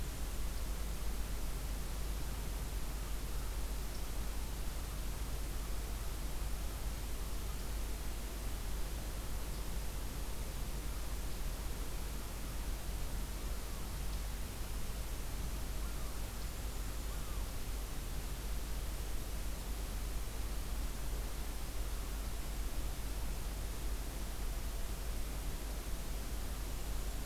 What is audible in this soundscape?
Black-and-white Warbler